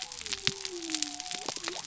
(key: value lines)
label: biophony
recorder: SoundTrap 300